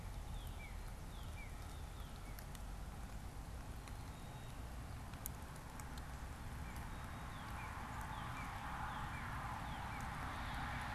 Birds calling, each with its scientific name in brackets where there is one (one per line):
Northern Cardinal (Cardinalis cardinalis)
Black-capped Chickadee (Poecile atricapillus)